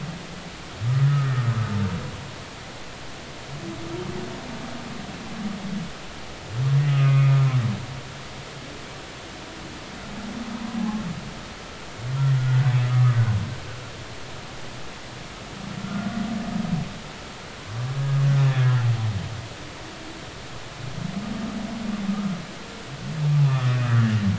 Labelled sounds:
1.0	1.7	humpback whale, 1.2 to 1.9 kHz
6.9	7.4	humpback whale, 1.2 to 2.6 kHz
12.4	13.2	humpback whale, 1.1 to 1.6 kHz
15.8	16.2	humpback whale, 1.3 to 1.5 kHz
18.5	18.8	humpback whale, 1.6 to 1.9 kHz

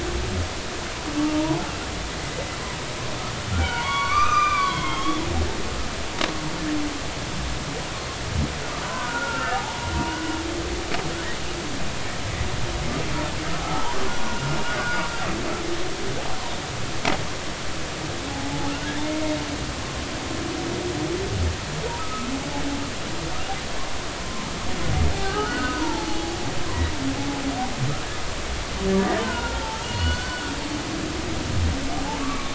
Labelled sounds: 2.2	2.5	humpback whale, 2.0 to 2.1 kHz
3.5	5.2	humpback whale, 0.86 to 6.1 kHz
8.8	9.8	humpback whale, 0.80 to 2.9 kHz
14.2	15.3	humpback whale, 1.3 to 1.6 kHz
18.3	19.0	humpback whale, 0.80 to 1.8 kHz
22.0	22.3	humpback whale, 1.2 to 1.3 kHz
25.1	26.4	humpback whale, 0.80 to 1.6 kHz
29.4	30.7	humpback whale, 0.83 to 4.6 kHz
32.2	32.5	humpback whale, 1.1 to 2.4 kHz

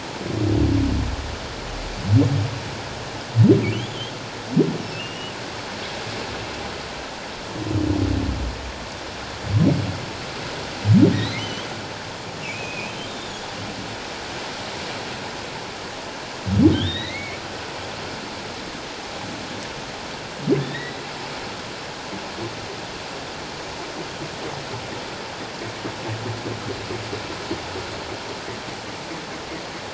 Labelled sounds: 3.7	4.1	humpback whale, 2.9 to 3.5 kHz
4.8	5.3	humpback whale, 2.6 to 3.0 kHz
11.1	11.7	humpback whale, 2.9 to 4.2 kHz
12.4	13.5	humpback whale, 2.2 to 3.8 kHz
16.7	17.4	humpback whale, 1.5 to 4.5 kHz
20.6	21.0	humpback whale, 1.8 to 4.0 kHz

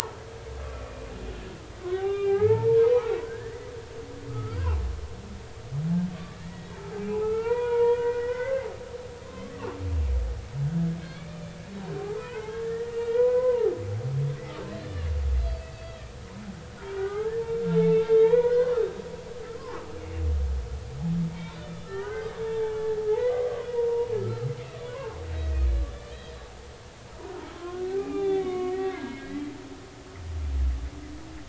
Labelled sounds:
1.9	3.7	humpback whale, 0.80 to 2.9 kHz
4.0	4.6	humpback whale, 1.2 to 2.4 kHz
6.4	6.7	humpback whale, 1.7 to 2.0 kHz
7.2	8.7	humpback whale, 0.86 to 2.5 kHz
9.2	9.6	humpback whale, 0.99 to 1.2 kHz
11.0	11.6	humpback whale, 1.5 to 2.5 kHz
12.0	13.7	humpback whale, 0.80 to 3.5 kHz
15.4	16.1	humpback whale, 1.8 to 4.8 kHz
17.0	18.7	humpback whale, 0.80 to 4.3 kHz
19.5	19.8	humpback whale, 0.80 to 1.2 kHz
21.3	24.5	humpback whale, 0.83 to 3.7 kHz
24.9	26.2	humpback whale, 0.83 to 2.6 kHz
27.5	29.4	humpback whale, 0.80 to 3.6 kHz

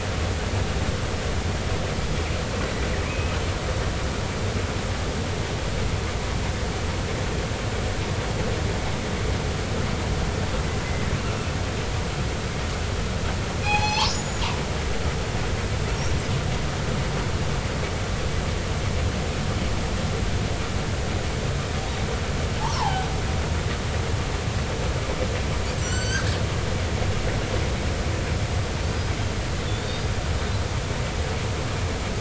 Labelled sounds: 3.0	3.4	killer whale, northern resident, 2.2 to 2.7 kHz
13.6	14.4	killer whale, northern resident, 0.80 to 7.0 kHz
22.6	23.1	killer whale, northern resident, 0.80 to 1.2 kHz
25.8	26.3	killer whale, northern resident, 1.3 to 8.0 kHz

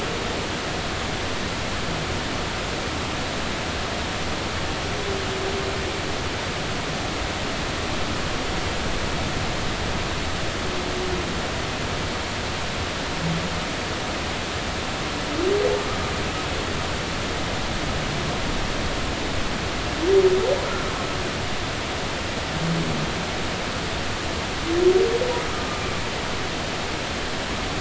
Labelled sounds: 25.5	25.8	humpback whale, 1.2 to 1.3 kHz

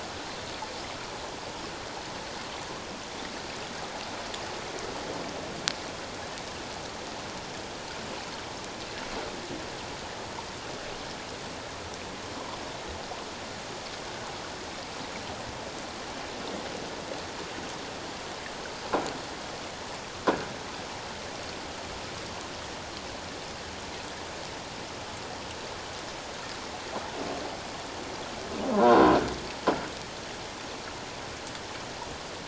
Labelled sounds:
28.7	29.1	croaking sound likely from a nearby submerged object, 0.91 to 1.1 kHz

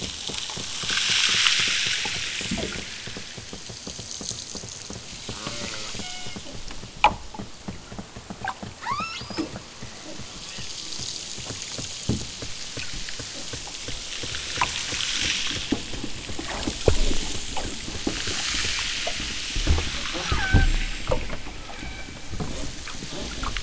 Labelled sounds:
5.2	6.4	killer whale, southern Alaska resident, 0 to 4.1 kHz
8.7	9.5	killer whale, southern Alaska resident, 0.31 to 8.0 kHz
10.2	10.7	killer whale, southern Alaska resident, 0.83 to 3.7 kHz
20.0	20.8	killer whale, southern Alaska resident, 0 to 4.0 kHz
21.6	22.2	killer whale, southern Alaska resident, 0.37 to 4.2 kHz

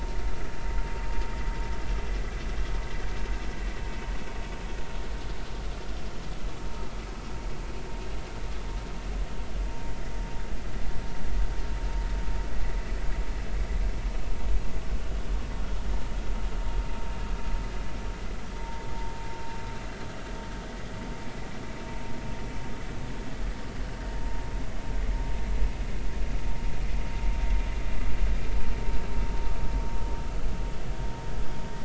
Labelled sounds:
18.6	18.8	vessel noise, 0.86 to 0.96 kHz

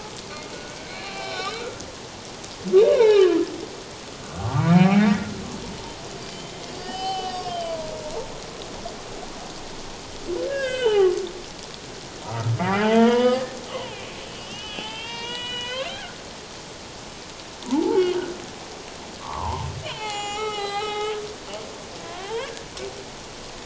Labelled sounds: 0.5	1.8	humpback whale, 0.78 to 5.5 kHz
2.9	3.4	humpback whale, 0.81 to 4.2 kHz
4.7	5.1	humpback whale, 0.78 to 2.7 kHz
6.3	7.9	humpback whale, 0.78 to 5.5 kHz
10.5	11.1	humpback whale, 0.78 to 3.8 kHz
12.2	16.1	humpback whale, 0.78 to 7.9 kHz
17.6	18.0	humpback whale, 0.78 to 1.1 kHz
19.2	21.2	humpback whale, 0.78 to 7.5 kHz
22.0	22.5	humpback whale, 0.78 to 3.4 kHz

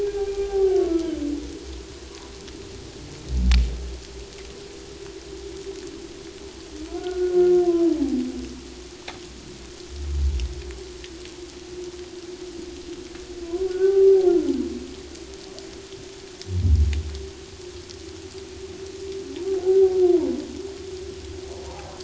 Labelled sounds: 0.0	1.1	humpback whale, 0.78 to 1.7 kHz
6.9	7.5	humpback whale, 1.3 to 1.6 kHz
7.9	8.2	humpback whale, 0.78 to 1.0 kHz
13.7	14.3	humpback whale, 0.78 to 1.6 kHz
21.6	21.9	humpback whale, 0.78 to 1.0 kHz

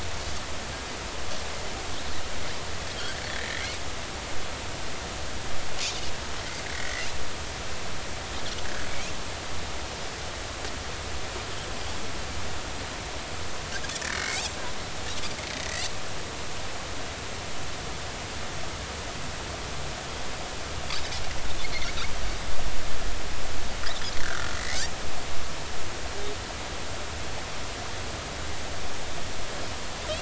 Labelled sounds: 3.3	3.8	Pacific white-sided dolphin, 1.7 to 2.4 kHz
6.7	7.1	Pacific white-sided dolphin, 1.8 to 2.1 kHz
14.1	14.5	Pacific white-sided dolphin, 2.1 to 2.8 kHz
24.2	24.8	Pacific white-sided dolphin, 1.3 to 2.3 kHz

